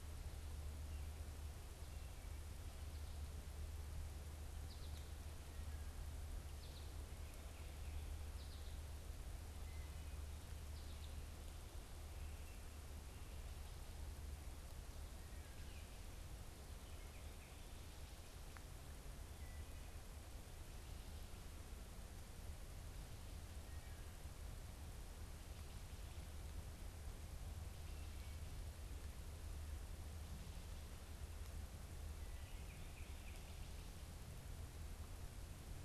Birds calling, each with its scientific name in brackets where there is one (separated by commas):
American Goldfinch (Spinus tristis), unidentified bird